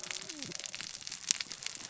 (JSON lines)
{"label": "biophony, cascading saw", "recorder": "SoundTrap 600 or HydroMoth"}